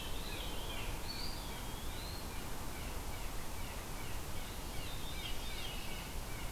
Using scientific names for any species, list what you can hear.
Catharus fuscescens, Cyanocitta cristata, Contopus virens